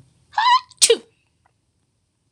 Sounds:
Sneeze